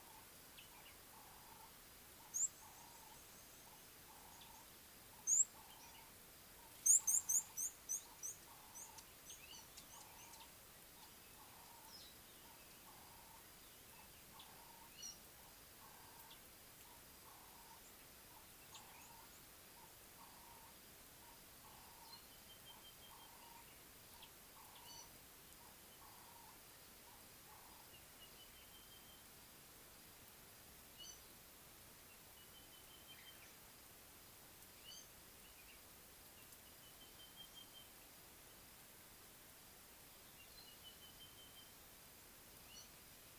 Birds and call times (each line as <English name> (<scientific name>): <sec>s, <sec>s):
Red-cheeked Cordonbleu (Uraeginthus bengalus): 2.5s, 7.2s
Ring-necked Dove (Streptopelia capicola): 11.6s
Gray-backed Camaroptera (Camaroptera brevicaudata): 15.1s, 25.0s, 34.9s
Sulphur-breasted Bushshrike (Telophorus sulfureopectus): 22.8s, 37.1s